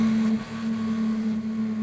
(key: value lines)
label: anthrophony, boat engine
recorder: SoundTrap 500